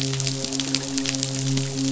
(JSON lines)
{"label": "biophony, midshipman", "recorder": "SoundTrap 500"}